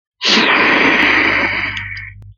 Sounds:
Sniff